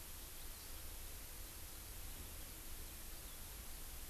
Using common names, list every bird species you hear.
Eurasian Skylark, Hawaii Amakihi